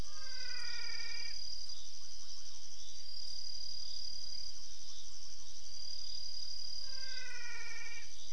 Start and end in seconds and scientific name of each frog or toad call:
0.2	1.5	Physalaemus albonotatus
6.5	8.3	Physalaemus albonotatus